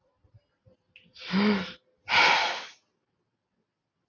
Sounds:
Sigh